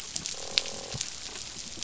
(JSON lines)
{"label": "biophony, croak", "recorder": "SoundTrap 500"}